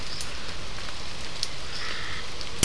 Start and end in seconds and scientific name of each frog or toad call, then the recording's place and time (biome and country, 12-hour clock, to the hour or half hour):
1.7	2.3	Scinax perereca
Atlantic Forest, Brazil, 6:30pm